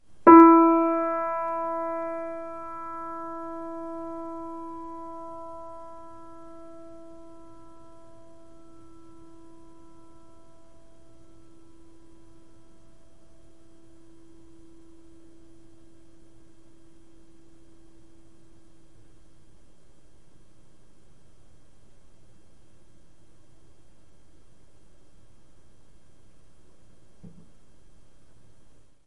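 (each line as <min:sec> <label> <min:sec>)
0:00.0 A short piano note. 0:06.5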